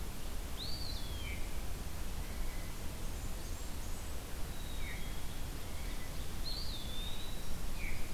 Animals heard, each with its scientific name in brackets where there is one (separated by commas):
Blackburnian Warbler (Setophaga fusca), Eastern Wood-Pewee (Contopus virens), Veery (Catharus fuscescens), Black-capped Chickadee (Poecile atricapillus)